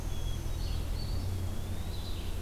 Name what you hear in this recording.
Downy Woodpecker, Hermit Thrush, Red-eyed Vireo, Eastern Wood-Pewee